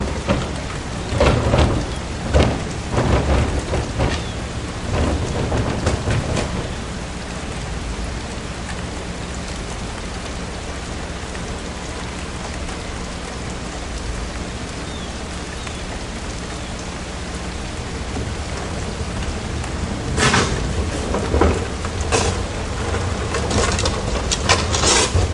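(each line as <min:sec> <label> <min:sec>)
0:00.0 Heavy wind blowing. 0:07.3
0:00.0 Heavy wind causing a curtain-like object to flap. 0:07.3
0:07.5 Quiet wind with birds singing in the background. 0:19.9
0:19.9 Heavy wind flipping objects over. 0:25.3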